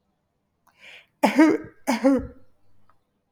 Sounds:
Cough